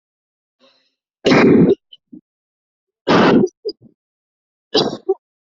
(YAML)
expert_labels:
- quality: poor
  cough_type: dry
  dyspnea: false
  wheezing: false
  stridor: false
  choking: false
  congestion: false
  nothing: true
  diagnosis: lower respiratory tract infection
  severity: mild
age: 24
gender: female
respiratory_condition: false
fever_muscle_pain: false
status: healthy